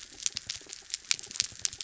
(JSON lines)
{"label": "anthrophony, mechanical", "recorder": "SoundTrap 300"}